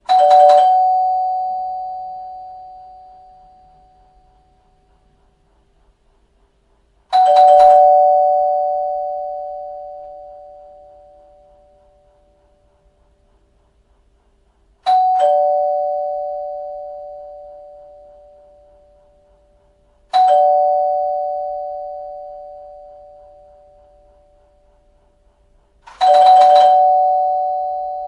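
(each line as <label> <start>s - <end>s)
A doorbell rings rapidly and repeatedly indoors. 0.0s - 2.7s
A doorbell rings rapidly and repeatedly indoors. 7.0s - 11.2s
A doorbell rings once indoors. 14.7s - 18.4s
A doorbell rings once indoors. 20.0s - 23.6s
A doorbell rings rapidly and repeatedly indoors. 25.8s - 28.1s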